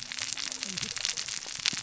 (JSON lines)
{"label": "biophony, cascading saw", "recorder": "SoundTrap 600 or HydroMoth"}